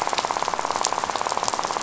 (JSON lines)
{"label": "biophony, rattle", "recorder": "SoundTrap 500"}